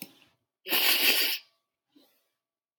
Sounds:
Sniff